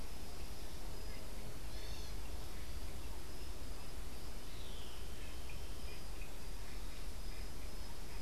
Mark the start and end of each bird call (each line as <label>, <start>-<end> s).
unidentified bird, 1.5-2.2 s